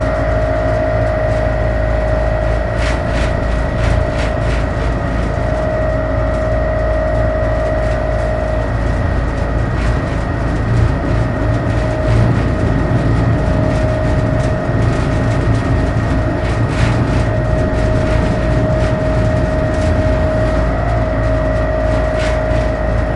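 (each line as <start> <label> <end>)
0.0 A vibrating engine sound is steady, dominant, and loud. 23.2
2.8 The sound of train tracks or a dispenser mechanism operates in a rhythmic pattern repeatedly. 5.1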